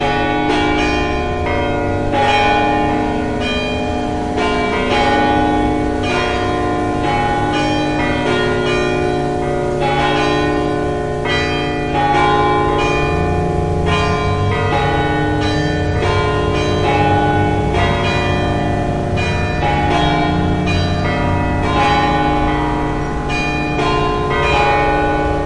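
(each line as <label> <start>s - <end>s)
Church bells of varying pitches ringing. 0.0s - 25.5s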